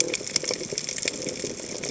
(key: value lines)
label: biophony
recorder: HydroMoth